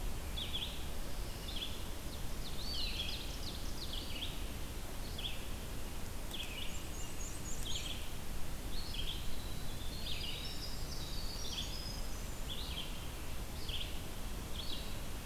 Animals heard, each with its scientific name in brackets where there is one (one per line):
Eastern Wood-Pewee (Contopus virens)
Red-eyed Vireo (Vireo olivaceus)
Black-and-white Warbler (Mniotilta varia)
Winter Wren (Troglodytes hiemalis)
Ovenbird (Seiurus aurocapilla)